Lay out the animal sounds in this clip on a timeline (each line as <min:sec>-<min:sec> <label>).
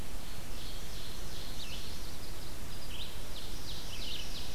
0:00.0-0:02.6 Ovenbird (Seiurus aurocapilla)
0:01.5-0:04.5 Red-eyed Vireo (Vireo olivaceus)
0:03.1-0:04.5 Ovenbird (Seiurus aurocapilla)